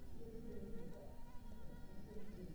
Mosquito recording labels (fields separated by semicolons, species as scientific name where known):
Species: Anopheles arabiensis; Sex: female; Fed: unfed; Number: one; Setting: cup